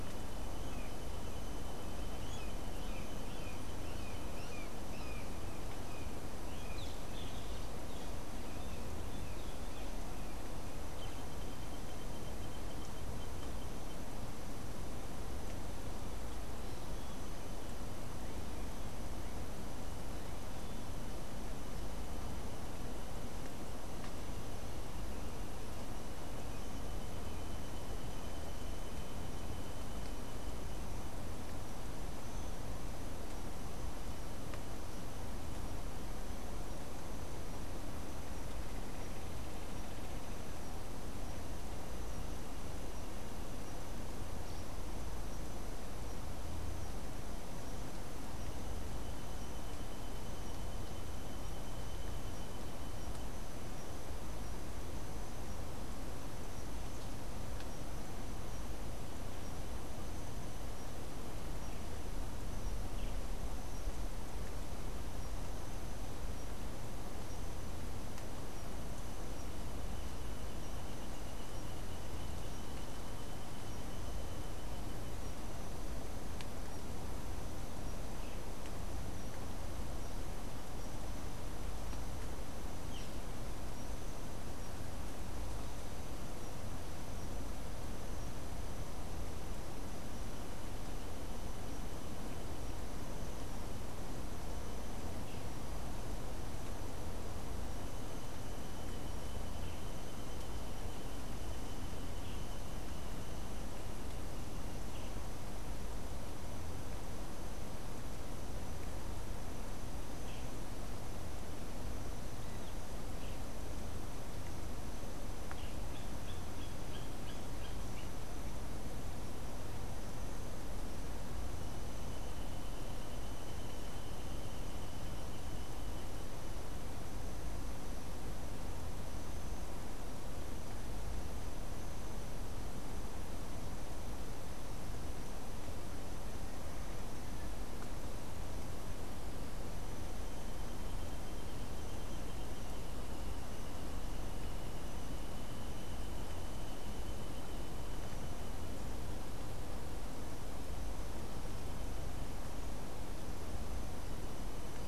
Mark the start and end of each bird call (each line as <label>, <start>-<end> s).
Brown Jay (Psilorhinus morio), 0.0-8.5 s
Boat-billed Flycatcher (Megarynchus pitangua), 6.7-8.2 s
Boat-billed Flycatcher (Megarynchus pitangua), 110.0-113.5 s
Hoffmann's Woodpecker (Melanerpes hoffmannii), 115.4-118.2 s